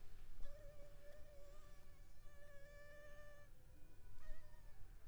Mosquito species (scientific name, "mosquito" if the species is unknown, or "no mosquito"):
Anopheles arabiensis